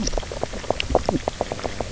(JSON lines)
{"label": "biophony, knock croak", "recorder": "SoundTrap 300"}